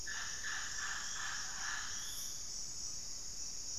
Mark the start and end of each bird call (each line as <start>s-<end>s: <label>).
0.0s-3.8s: Mealy Parrot (Amazona farinosa)
2.2s-3.8s: White-rumped Sirystes (Sirystes albocinereus)